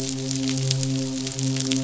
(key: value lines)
label: biophony, midshipman
recorder: SoundTrap 500